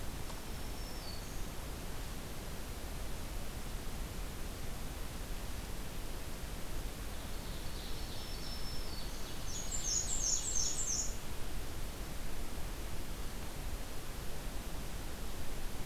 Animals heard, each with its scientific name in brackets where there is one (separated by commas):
Black-throated Green Warbler (Setophaga virens), Black-and-white Warbler (Mniotilta varia), Ovenbird (Seiurus aurocapilla)